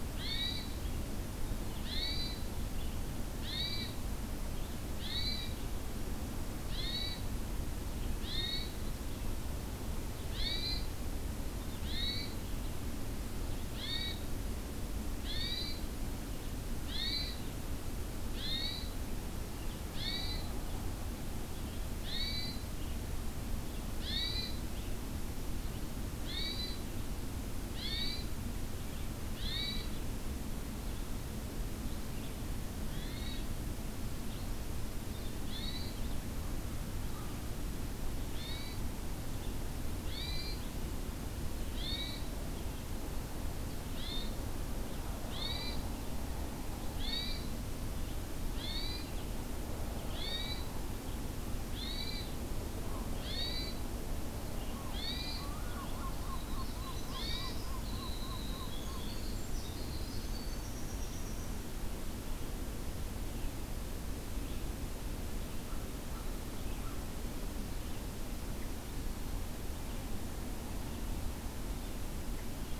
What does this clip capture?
Red-eyed Vireo, Hermit Thrush, American Herring Gull, Winter Wren